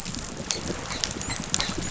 {"label": "biophony, dolphin", "recorder": "SoundTrap 500"}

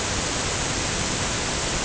{"label": "ambient", "recorder": "HydroMoth"}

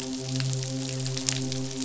{"label": "biophony, midshipman", "recorder": "SoundTrap 500"}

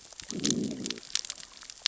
{"label": "biophony, growl", "recorder": "SoundTrap 600 or HydroMoth"}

